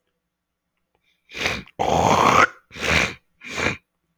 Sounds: Throat clearing